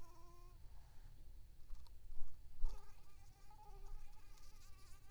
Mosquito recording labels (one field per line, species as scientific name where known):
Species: Anopheles arabiensis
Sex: female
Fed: unfed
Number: one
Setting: cup